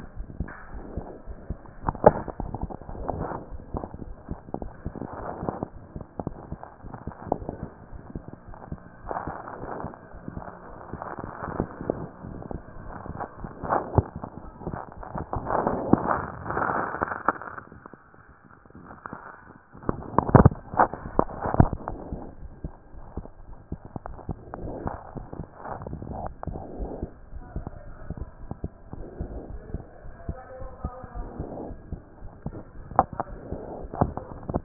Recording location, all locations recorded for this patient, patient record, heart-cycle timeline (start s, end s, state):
aortic valve (AV)
aortic valve (AV)+mitral valve (MV)
#Age: Child
#Sex: Male
#Height: 102.0 cm
#Weight: 19.9 kg
#Pregnancy status: False
#Murmur: Absent
#Murmur locations: nan
#Most audible location: nan
#Systolic murmur timing: nan
#Systolic murmur shape: nan
#Systolic murmur grading: nan
#Systolic murmur pitch: nan
#Systolic murmur quality: nan
#Diastolic murmur timing: nan
#Diastolic murmur shape: nan
#Diastolic murmur grading: nan
#Diastolic murmur pitch: nan
#Diastolic murmur quality: nan
#Outcome: Normal
#Campaign: 2014 screening campaign
0.00	0.10	unannotated
0.10	0.16	diastole
0.16	0.26	S1
0.26	0.38	systole
0.38	0.48	S2
0.48	0.72	diastole
0.72	0.84	S1
0.84	0.96	systole
0.96	1.06	S2
1.06	1.28	diastole
1.28	1.38	S1
1.38	1.48	systole
1.48	1.58	S2
1.58	1.86	diastole
1.86	1.96	S1
1.96	2.04	systole
2.04	2.15	S2
2.15	2.40	diastole
2.40	2.52	S1
2.52	2.62	systole
2.62	2.70	S2
2.70	2.95	diastole
2.95	3.08	S1
3.08	3.19	systole
3.19	3.28	S2
3.28	3.52	diastole
3.52	3.62	S1
3.62	3.74	systole
3.74	3.84	S2
3.84	4.04	diastole
4.04	4.16	S1
4.16	4.30	systole
4.30	4.40	S2
4.40	4.60	diastole
4.60	4.70	S1
4.70	4.86	systole
4.86	4.96	S2
4.96	5.24	diastole
5.24	34.64	unannotated